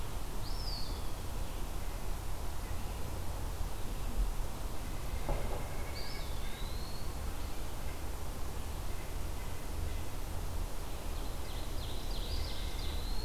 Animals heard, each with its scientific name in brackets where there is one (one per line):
White-breasted Nuthatch (Sitta carolinensis)
Ovenbird (Seiurus aurocapilla)
Eastern Wood-Pewee (Contopus virens)